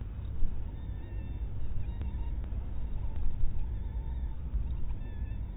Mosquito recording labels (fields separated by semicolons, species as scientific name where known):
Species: mosquito; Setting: cup